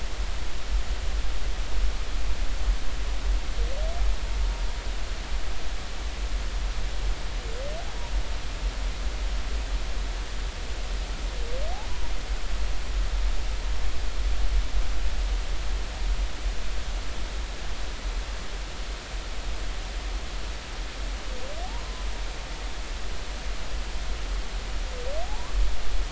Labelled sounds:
25.2	25.5	humpback whale, 0.80 to 1.2 kHz

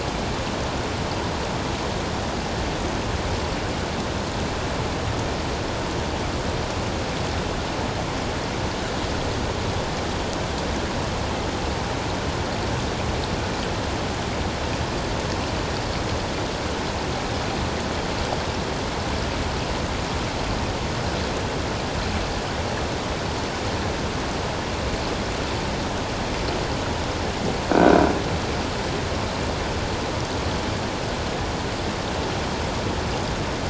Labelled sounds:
27.7	28.0	croaking sound likely from a nearby submerged object, 1.4 to 1.6 kHz

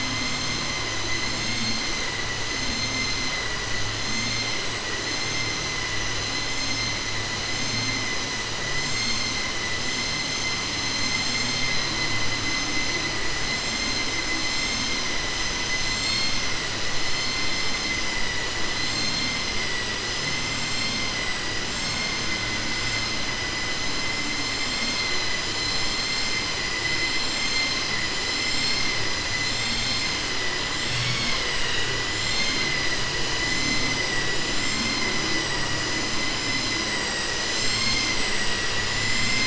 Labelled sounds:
10.9	11.9	vessel noise, 2.3 to 5.2 kHz

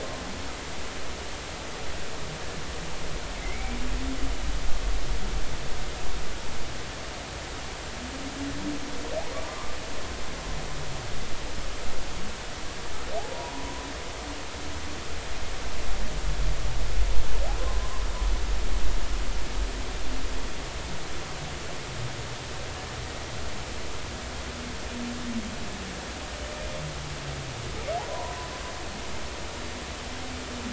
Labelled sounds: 3.4	3.8	humpback whale, 2.0 to 2.4 kHz
9.3	9.8	humpback whale, 0.96 to 1.2 kHz
13.5	13.9	humpback whale, 0.93 to 1.0 kHz
17.6	18.0	humpback whale, 0.99 to 1.1 kHz
28.0	28.5	humpback whale, 0.80 to 1.1 kHz

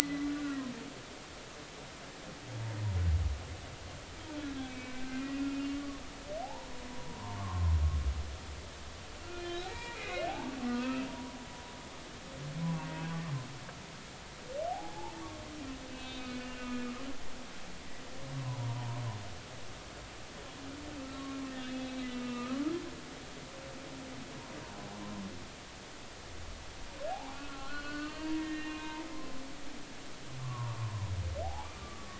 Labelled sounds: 0.3	0.6	humpback whale, 1.3 to 1.6 kHz
1.0	1.3	humpback whale, 1.9 to 2.1 kHz
4.6	5.0	humpback whale, 2.2 to 2.6 kHz
5.7	7.8	humpback whale, 0.80 to 1.2 kHz
9.3	11.4	humpback whale, 0.80 to 4.1 kHz
14.7	15.1	humpback whale, 0.80 to 0.96 kHz
15.9	16.9	humpback whale, 1.7 to 3.9 kHz
18.3	19.0	humpback whale, 0.83 to 1.2 kHz
21.1	22.6	humpback whale, 1.1 to 4.2 kHz
27.1	29.0	humpback whale, 0.80 to 4.5 kHz
30.4	31.1	humpback whale, 0.93 to 1.2 kHz
31.4	32.1	humpback whale, 0.80 to 1.2 kHz

